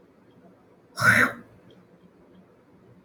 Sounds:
Throat clearing